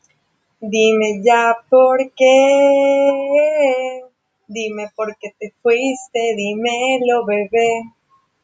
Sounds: Sigh